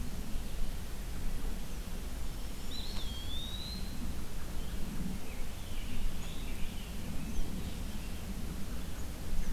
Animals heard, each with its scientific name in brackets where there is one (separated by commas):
Scarlet Tanager (Piranga olivacea), Eastern Wood-Pewee (Contopus virens)